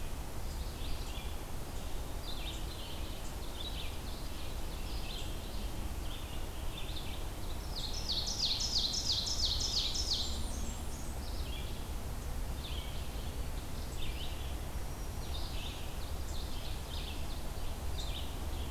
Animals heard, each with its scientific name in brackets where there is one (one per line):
Ovenbird (Seiurus aurocapilla)
Red-eyed Vireo (Vireo olivaceus)
Blackburnian Warbler (Setophaga fusca)